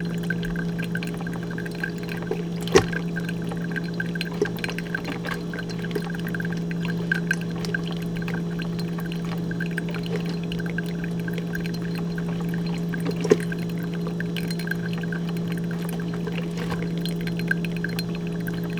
What element is flowing into the container?
water